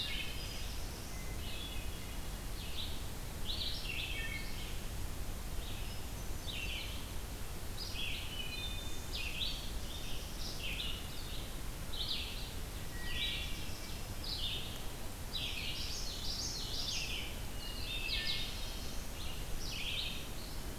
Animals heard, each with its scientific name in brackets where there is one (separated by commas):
Wood Thrush (Hylocichla mustelina), Hermit Thrush (Catharus guttatus), Common Yellowthroat (Geothlypis trichas), Red-eyed Vireo (Vireo olivaceus)